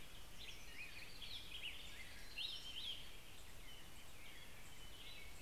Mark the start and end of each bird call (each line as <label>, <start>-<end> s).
Black-headed Grosbeak (Pheucticus melanocephalus), 0.0-3.4 s
American Robin (Turdus migratorius), 0.0-5.4 s